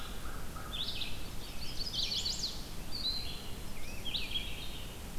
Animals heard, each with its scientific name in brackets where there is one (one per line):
American Crow (Corvus brachyrhynchos)
Red-eyed Vireo (Vireo olivaceus)
Rose-breasted Grosbeak (Pheucticus ludovicianus)
Chestnut-sided Warbler (Setophaga pensylvanica)